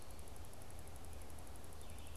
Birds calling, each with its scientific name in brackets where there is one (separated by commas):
Red-eyed Vireo (Vireo olivaceus)